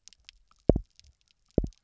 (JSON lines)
{"label": "biophony, double pulse", "recorder": "SoundTrap 300"}